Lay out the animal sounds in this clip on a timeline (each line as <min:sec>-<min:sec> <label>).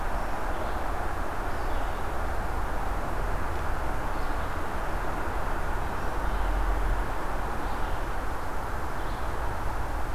0:00.0-0:10.1 Red-eyed Vireo (Vireo olivaceus)